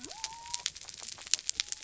{"label": "biophony", "recorder": "SoundTrap 300"}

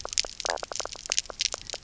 {"label": "biophony, knock croak", "recorder": "SoundTrap 300"}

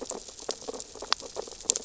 {"label": "biophony, sea urchins (Echinidae)", "recorder": "SoundTrap 600 or HydroMoth"}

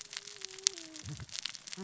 {"label": "biophony, cascading saw", "recorder": "SoundTrap 600 or HydroMoth"}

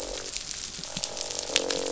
{"label": "biophony, croak", "recorder": "SoundTrap 500"}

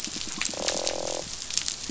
{"label": "biophony, croak", "recorder": "SoundTrap 500"}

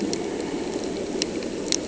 {"label": "anthrophony, boat engine", "recorder": "HydroMoth"}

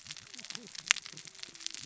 {"label": "biophony, cascading saw", "recorder": "SoundTrap 600 or HydroMoth"}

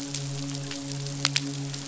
{"label": "biophony, midshipman", "recorder": "SoundTrap 500"}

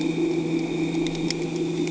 {"label": "anthrophony, boat engine", "recorder": "HydroMoth"}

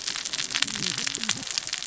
{"label": "biophony, cascading saw", "recorder": "SoundTrap 600 or HydroMoth"}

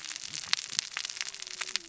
{"label": "biophony, cascading saw", "recorder": "SoundTrap 600 or HydroMoth"}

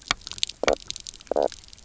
{"label": "biophony, knock croak", "recorder": "SoundTrap 300"}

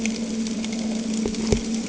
{"label": "anthrophony, boat engine", "recorder": "HydroMoth"}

